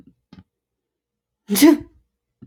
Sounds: Sneeze